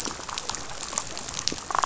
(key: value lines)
label: biophony, damselfish
recorder: SoundTrap 500